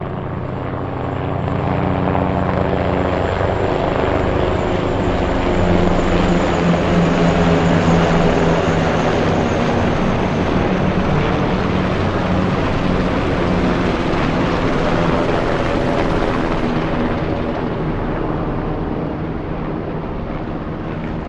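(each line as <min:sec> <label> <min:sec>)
0:00.0 Helicopter sounds with volume steadily increasing and decreasing. 0:21.3
0:09.6 Car engine volume rises and then falls. 0:19.9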